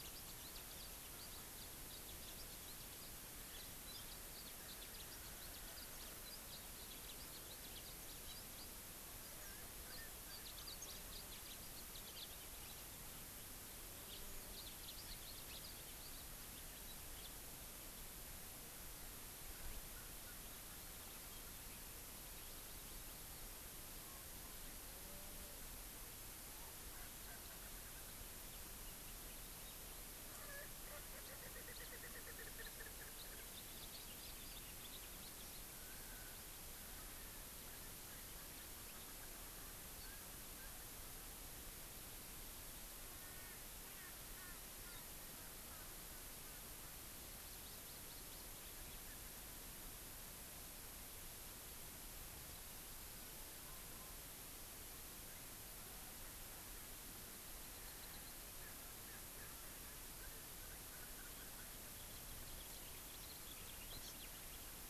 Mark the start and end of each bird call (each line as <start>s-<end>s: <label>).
0.0s-3.2s: Yellow-fronted Canary (Crithagra mozambica)
3.8s-5.9s: House Finch (Haemorhous mexicanus)
6.2s-8.8s: House Finch (Haemorhous mexicanus)
10.3s-12.3s: House Finch (Haemorhous mexicanus)
14.0s-16.3s: House Finch (Haemorhous mexicanus)
26.9s-28.4s: Erckel's Francolin (Pternistis erckelii)
30.2s-33.5s: Erckel's Francolin (Pternistis erckelii)
33.5s-35.7s: House Finch (Haemorhous mexicanus)
43.0s-46.7s: Erckel's Francolin (Pternistis erckelii)
47.3s-48.8s: Hawaii Amakihi (Chlorodrepanis virens)
61.9s-64.8s: House Finch (Haemorhous mexicanus)
63.9s-64.2s: Hawaii Amakihi (Chlorodrepanis virens)